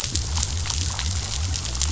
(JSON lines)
{"label": "biophony", "recorder": "SoundTrap 500"}